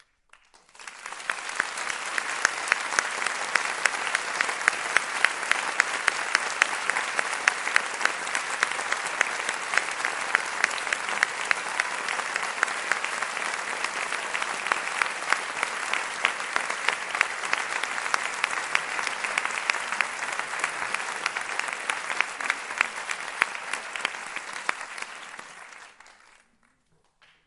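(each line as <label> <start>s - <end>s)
People rhythmically clap their hands indoors, starting abruptly and then fading away. 0.9s - 26.1s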